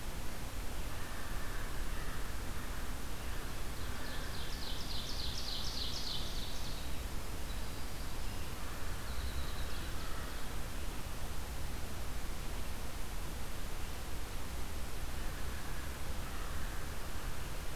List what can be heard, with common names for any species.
American Crow, Ovenbird, Winter Wren